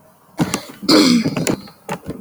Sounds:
Throat clearing